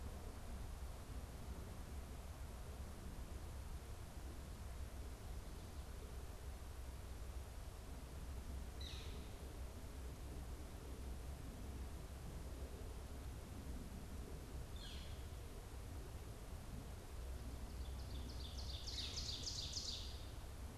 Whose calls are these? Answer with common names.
Northern Flicker, Ovenbird